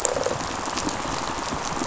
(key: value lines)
label: biophony, rattle response
recorder: SoundTrap 500